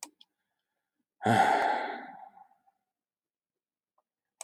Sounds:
Sigh